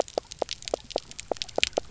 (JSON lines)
{"label": "biophony, knock", "recorder": "SoundTrap 300"}